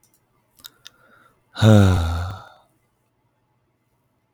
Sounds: Sigh